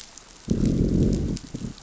{"label": "biophony, growl", "recorder": "SoundTrap 500"}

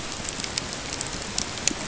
{"label": "ambient", "recorder": "HydroMoth"}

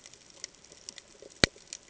{"label": "ambient", "recorder": "HydroMoth"}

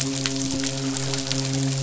{"label": "biophony, midshipman", "recorder": "SoundTrap 500"}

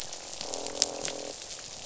{"label": "biophony, croak", "recorder": "SoundTrap 500"}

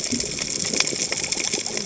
{"label": "biophony, cascading saw", "recorder": "HydroMoth"}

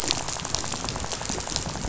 {"label": "biophony, rattle", "recorder": "SoundTrap 500"}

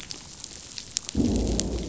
{"label": "biophony, growl", "recorder": "SoundTrap 500"}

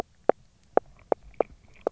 {"label": "biophony, knock", "recorder": "SoundTrap 300"}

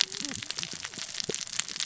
{"label": "biophony, cascading saw", "recorder": "SoundTrap 600 or HydroMoth"}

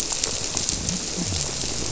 {"label": "biophony", "recorder": "SoundTrap 300"}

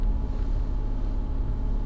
{"label": "anthrophony, boat engine", "recorder": "SoundTrap 300"}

